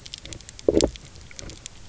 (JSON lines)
{"label": "biophony, low growl", "recorder": "SoundTrap 300"}